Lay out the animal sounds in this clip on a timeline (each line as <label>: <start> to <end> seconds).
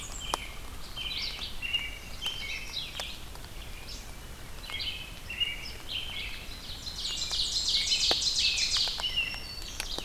Red-eyed Vireo (Vireo olivaceus): 0.0 to 10.0 seconds
American Robin (Turdus migratorius): 0.1 to 2.8 seconds
Magnolia Warbler (Setophaga magnolia): 1.8 to 2.9 seconds
American Robin (Turdus migratorius): 4.5 to 6.4 seconds
Ovenbird (Seiurus aurocapilla): 6.5 to 9.2 seconds
Blackburnian Warbler (Setophaga fusca): 6.7 to 8.1 seconds
American Robin (Turdus migratorius): 7.5 to 9.5 seconds
Black-throated Green Warbler (Setophaga virens): 8.8 to 10.0 seconds